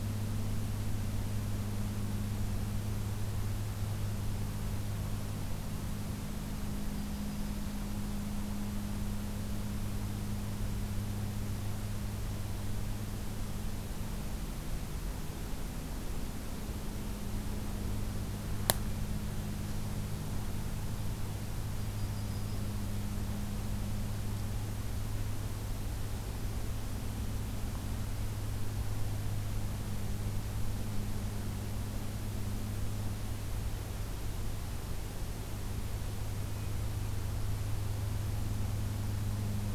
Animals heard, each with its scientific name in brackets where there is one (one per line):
Yellow-rumped Warbler (Setophaga coronata)